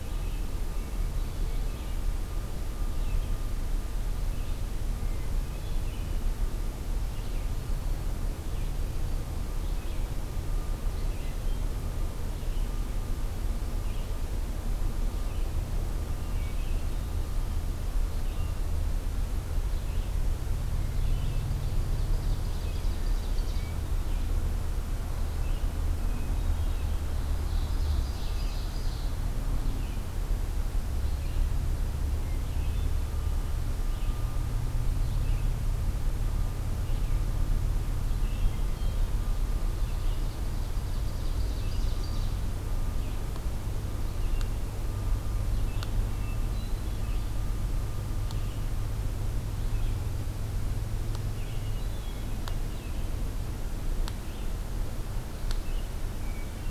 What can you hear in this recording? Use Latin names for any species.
Vireo olivaceus, Catharus guttatus, Setophaga virens, Seiurus aurocapilla